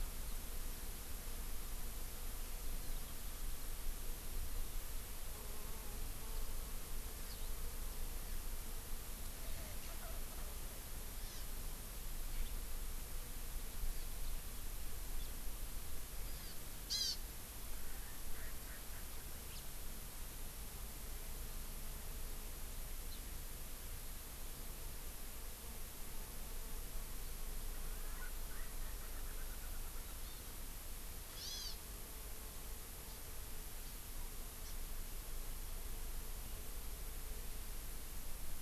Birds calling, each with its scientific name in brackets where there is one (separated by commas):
Erckel's Francolin (Pternistis erckelii), Hawaii Amakihi (Chlorodrepanis virens), House Finch (Haemorhous mexicanus), Eurasian Skylark (Alauda arvensis)